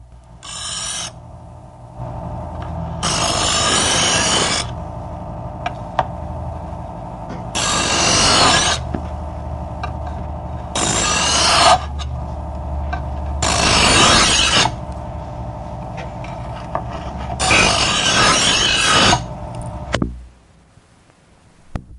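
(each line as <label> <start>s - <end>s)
A knife is being sharpened with a knife sharpener. 0.4s - 1.2s
A knife being sharpened with a sharpener. 3.0s - 4.7s
A knife being sharpened with a sharpener. 7.6s - 8.8s
A knife being sharpened with a sharpener. 10.8s - 11.9s
A knife being sharpened with a sharpener. 13.4s - 14.7s
A knife being sharpened with a sharpener. 17.4s - 19.2s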